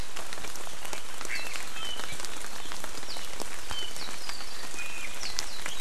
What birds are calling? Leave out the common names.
Himatione sanguinea, Drepanis coccinea